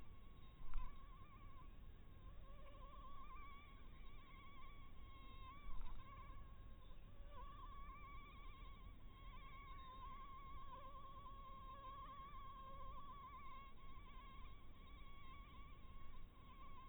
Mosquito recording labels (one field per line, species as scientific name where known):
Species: Anopheles harrisoni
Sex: female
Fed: blood-fed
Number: one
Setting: cup